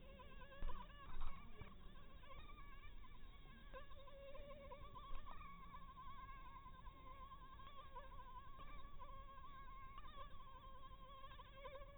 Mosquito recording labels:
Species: Anopheles maculatus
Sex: female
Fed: blood-fed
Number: one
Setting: cup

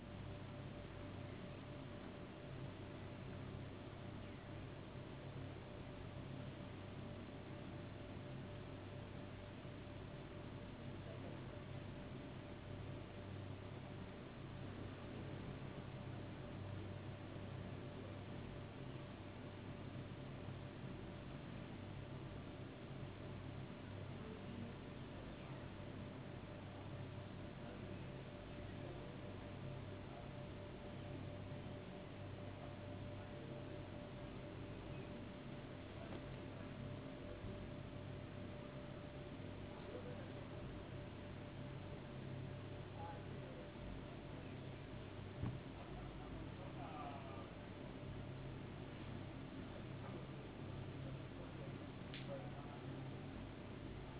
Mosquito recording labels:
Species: no mosquito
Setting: insect culture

